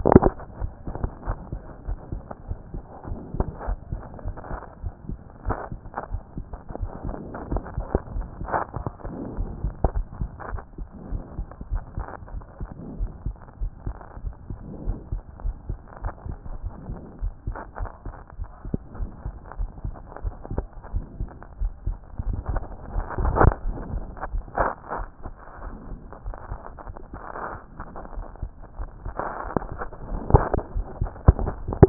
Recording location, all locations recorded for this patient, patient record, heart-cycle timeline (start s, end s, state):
aortic valve (AV)
aortic valve (AV)+pulmonary valve (PV)+mitral valve (MV)+other location+other location
#Age: Child
#Sex: Male
#Height: 129.0 cm
#Weight: 24.8 kg
#Pregnancy status: False
#Murmur: Absent
#Murmur locations: nan
#Most audible location: nan
#Systolic murmur timing: nan
#Systolic murmur shape: nan
#Systolic murmur grading: nan
#Systolic murmur pitch: nan
#Systolic murmur quality: nan
#Diastolic murmur timing: nan
#Diastolic murmur shape: nan
#Diastolic murmur grading: nan
#Diastolic murmur pitch: nan
#Diastolic murmur quality: nan
#Outcome: Abnormal
#Campaign: 2014 screening campaign
0.00	1.26	unannotated
1.26	1.38	S1
1.38	1.52	systole
1.52	1.60	S2
1.60	1.86	diastole
1.86	1.98	S1
1.98	2.12	systole
2.12	2.22	S2
2.22	2.48	diastole
2.48	2.58	S1
2.58	2.74	systole
2.74	2.82	S2
2.82	3.08	diastole
3.08	3.20	S1
3.20	3.36	systole
3.36	3.46	S2
3.46	3.68	diastole
3.68	3.78	S1
3.78	3.92	systole
3.92	4.02	S2
4.02	4.24	diastole
4.24	4.36	S1
4.36	4.50	systole
4.50	4.60	S2
4.60	4.82	diastole
4.82	4.94	S1
4.94	5.08	systole
5.08	5.18	S2
5.18	5.46	diastole
5.46	5.58	S1
5.58	5.70	systole
5.70	5.80	S2
5.80	6.10	diastole
6.10	6.22	S1
6.22	6.36	systole
6.36	6.46	S2
6.46	6.80	diastole
6.80	6.90	S1
6.90	7.06	systole
7.06	7.16	S2
7.16	7.50	diastole
7.50	7.62	S1
7.62	7.76	systole
7.76	7.86	S2
7.86	8.14	diastole
8.14	8.26	S1
8.26	8.42	systole
8.42	8.50	S2
8.50	8.76	diastole
8.76	8.86	S1
8.86	9.04	systole
9.04	9.14	S2
9.14	9.38	diastole
9.38	9.50	S1
9.50	9.62	systole
9.62	9.74	S2
9.74	9.94	diastole
9.94	10.06	S1
10.06	10.20	systole
10.20	10.30	S2
10.30	10.50	diastole
10.50	10.62	S1
10.62	10.78	systole
10.78	10.88	S2
10.88	11.10	diastole
11.10	11.22	S1
11.22	11.38	systole
11.38	11.46	S2
11.46	11.70	diastole
11.70	11.82	S1
11.82	11.96	systole
11.96	12.06	S2
12.06	12.32	diastole
12.32	12.44	S1
12.44	12.60	systole
12.60	12.68	S2
12.68	12.98	diastole
12.98	13.10	S1
13.10	13.26	systole
13.26	13.34	S2
13.34	13.62	diastole
13.62	13.72	S1
13.72	13.86	systole
13.86	13.96	S2
13.96	14.24	diastole
14.24	14.34	S1
14.34	14.48	systole
14.48	14.58	S2
14.58	14.86	diastole
14.86	14.98	S1
14.98	15.12	systole
15.12	15.22	S2
15.22	15.44	diastole
15.44	15.56	S1
15.56	15.68	systole
15.68	15.78	S2
15.78	16.02	diastole
16.02	16.14	S1
16.14	16.28	systole
16.28	16.36	S2
16.36	16.62	diastole
16.62	16.72	S1
16.72	16.88	systole
16.88	16.98	S2
16.98	17.22	diastole
17.22	17.34	S1
17.34	17.46	systole
17.46	17.56	S2
17.56	17.80	diastole
17.80	17.90	S1
17.90	18.06	systole
18.06	18.16	S2
18.16	18.38	diastole
18.38	18.48	S1
18.48	18.66	systole
18.66	18.78	S2
18.78	18.98	diastole
18.98	19.10	S1
19.10	19.24	systole
19.24	19.34	S2
19.34	19.58	diastole
19.58	19.70	S1
19.70	19.84	systole
19.84	19.94	S2
19.94	20.24	diastole
20.24	20.34	S1
20.34	20.54	systole
20.54	20.66	S2
20.66	20.94	diastole
20.94	21.04	S1
21.04	21.20	systole
21.20	21.30	S2
21.30	21.60	diastole
21.60	21.72	S1
21.72	21.86	systole
21.86	21.96	S2
21.96	22.19	diastole
22.19	31.89	unannotated